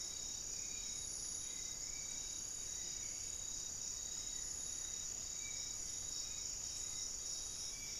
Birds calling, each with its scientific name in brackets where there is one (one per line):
Hauxwell's Thrush (Turdus hauxwelli)
Spot-winged Antshrike (Pygiptila stellaris)
Amazonian Trogon (Trogon ramonianus)